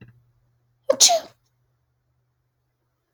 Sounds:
Sneeze